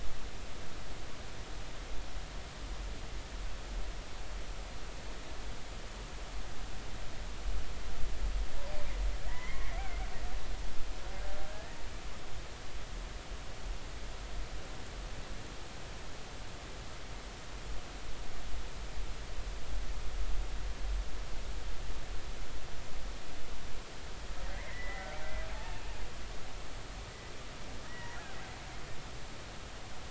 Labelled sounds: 9.3	9.8	killer whale, Bigg's (transient), 0.90 to 2.3 kHz
11.5	11.8	killer whale, Bigg's (transient), 1.6 to 1.9 kHz
24.5	25.1	killer whale, Bigg's (transient), 1.8 to 2.2 kHz
25.5	25.9	killer whale, Bigg's (transient), 0.80 to 2.8 kHz
27.9	28.2	killer whale, Bigg's (transient), 1.8 to 2.0 kHz

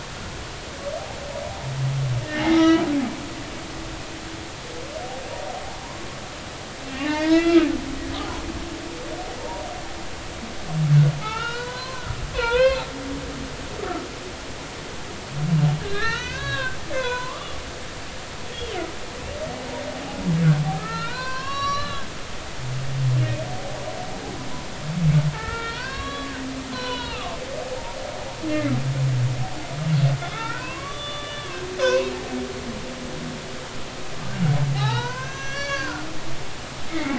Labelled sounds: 2.3	2.8	humpback whale, 1.2 to 4.0 kHz
6.9	7.7	humpback whale, 0.80 to 4.1 kHz
11.2	12.8	humpback whale, 0.86 to 4.4 kHz
15.8	17.6	humpback whale, 0.86 to 4.5 kHz
18.5	18.8	humpback whale, 3.0 to 3.5 kHz
20.7	22.1	humpback whale, 0.93 to 5.8 kHz
23.5	23.8	humpback whale, 0.80 to 0.90 kHz
25.3	26.3	humpback whale, 0.83 to 5.5 kHz
26.7	28.2	humpback whale, 0.83 to 5.6 kHz
28.5	28.7	humpback whale, 2.0 to 2.3 kHz
30.3	32.1	humpback whale, 0.86 to 3.6 kHz
34.7	36.0	humpback whale, 0.80 to 6.3 kHz
36.9	37.1	humpback whale, 1.8 to 2.3 kHz

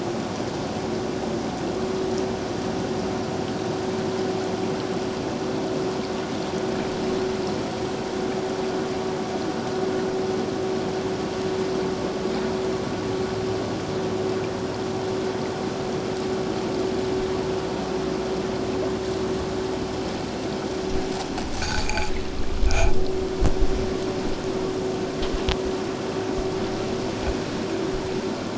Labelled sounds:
21.6	22.1	vessel noise, 2.2 to 4.8 kHz
22.7	22.9	vessel noise, 2.2 to 2.6 kHz

